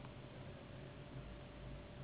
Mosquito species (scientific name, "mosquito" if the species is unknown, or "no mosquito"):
Anopheles gambiae s.s.